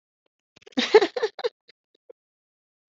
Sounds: Laughter